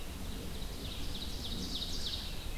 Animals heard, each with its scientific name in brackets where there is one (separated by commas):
Red-eyed Vireo (Vireo olivaceus), Ovenbird (Seiurus aurocapilla)